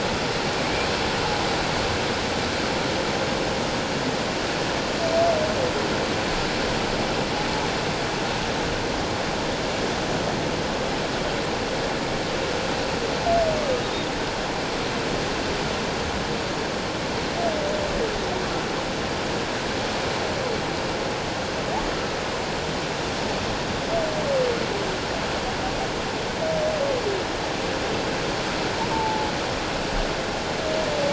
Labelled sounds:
0.6	0.9	humpback whale, 2.1 to 2.5 kHz
28.9	29.3	humpback whale, 0.81 to 0.94 kHz

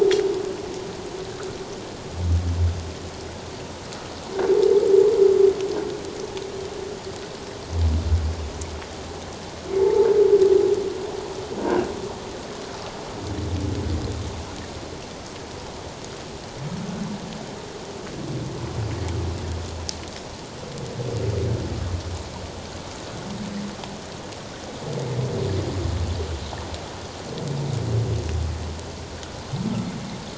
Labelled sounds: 9.8	10.1	humpback whale, 0.81 to 0.94 kHz

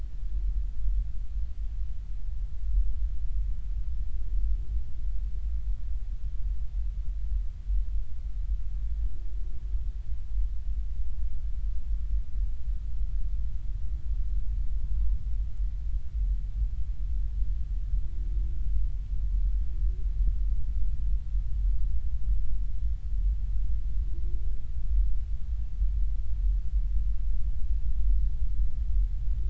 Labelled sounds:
14.8	15.2	humpback whale, 0.99 to 1.1 kHz

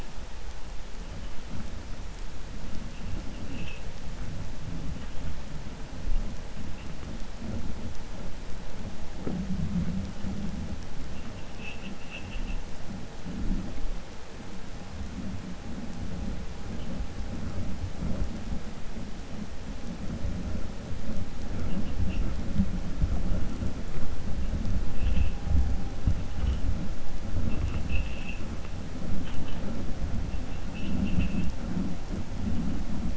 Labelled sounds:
11.5	12.6	vessel noise, 1.8 to 3.6 kHz

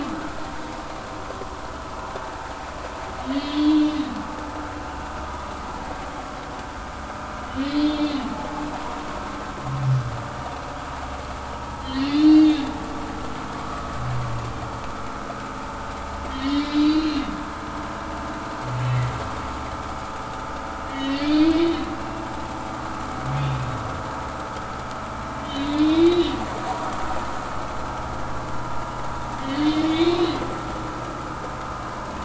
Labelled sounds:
3.3	4.0	humpback whale, 2.8 to 4.0 kHz
4.7	4.9	humpback whale, 2.7 to 2.8 kHz
7.5	8.3	humpback whale, 2.9 to 4.3 kHz
11.8	12.7	humpback whale, 2.6 to 4.4 kHz
16.3	17.2	humpback whale, 2.9 to 4.7 kHz
20.8	21.6	humpback whale, 1.8 to 4.6 kHz
23.4	23.6	humpback whale, 3.3 to 3.7 kHz
25.4	26.3	humpback whale, 2.2 to 4.0 kHz
26.7	27.1	humpback whale, 3.5 to 4.1 kHz
29.4	30.4	humpback whale, 2.2 to 4.3 kHz

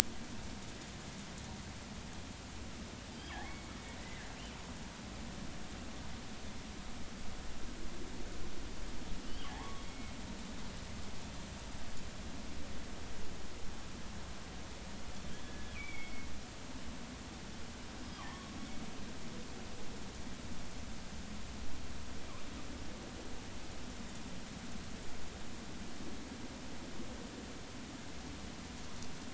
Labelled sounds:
3.1	3.4	killer whale, northern resident, G clan, call N23i, 3.1 to 5.0 kHz
9.5	10.1	killer whale, northern resident, G clan, call N23i, 0.80 to 2.2 kHz
15.3	16.3	killer whale, northern resident, G clan, GG subclan, call N23ii, 2.1 to 3.5 kHz
18.1	18.6	killer whale, northern resident, G clan, call N23i, 0.90 to 1.3 kHz

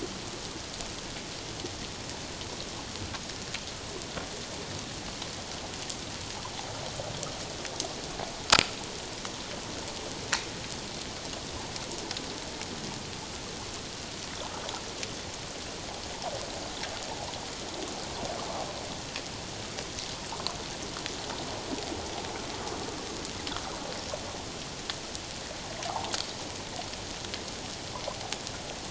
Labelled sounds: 25.9	26.1	water noise, 0.78 to 1.1 kHz

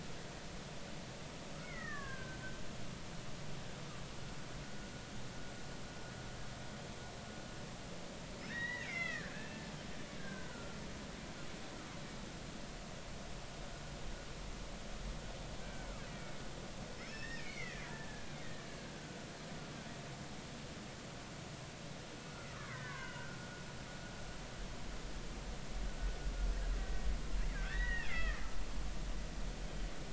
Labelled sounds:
1.5	2.4	killer whale, Bigg's (transient), 0.99 to 2.3 kHz
8.5	9.7	killer whale, Bigg's (transient), 1.2 to 4.0 kHz
10.2	10.8	killer whale, Bigg's (transient), 1.3 to 1.7 kHz
15.6	16.4	killer whale, Bigg's (transient), 1.5 to 2.4 kHz
17.0	18.4	killer whale, Bigg's (transient), 1.6 to 5.6 kHz
18.9	19.3	killer whale, Bigg's (transient), 1.4 to 1.6 kHz
22.5	23.4	killer whale, Bigg's (transient), 0.93 to 2.9 kHz
26.8	28.4	killer whale, Bigg's (transient), 1.2 to 3.5 kHz
29.7	29.9	killer whale, Bigg's (transient), 3.0 to 3.2 kHz

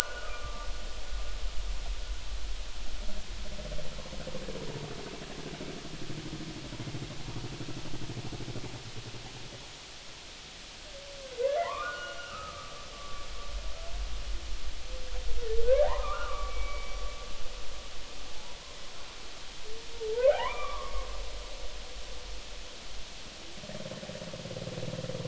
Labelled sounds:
0.2	0.7	humpback whale, 1.1 to 1.3 kHz
11.6	13.2	humpback whale, 0.86 to 2.9 kHz
15.6	17.0	humpback whale, 0.80 to 2.3 kHz
20.3	21.1	humpback whale, 0.80 to 2.5 kHz

